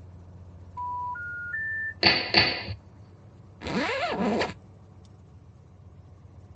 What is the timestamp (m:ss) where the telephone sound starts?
0:01